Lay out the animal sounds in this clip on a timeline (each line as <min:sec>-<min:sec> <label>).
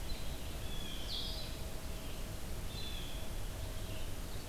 0:00.0-0:04.5 Blue-headed Vireo (Vireo solitarius)
0:00.6-0:01.1 Blue Jay (Cyanocitta cristata)
0:02.6-0:03.4 Blue Jay (Cyanocitta cristata)